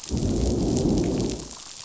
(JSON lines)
{"label": "biophony, growl", "recorder": "SoundTrap 500"}